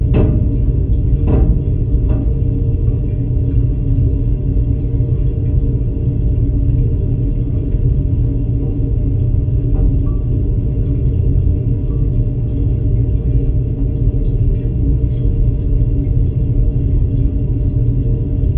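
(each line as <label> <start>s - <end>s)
A washing machine running. 0.0s - 18.6s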